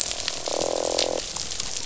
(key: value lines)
label: biophony, croak
recorder: SoundTrap 500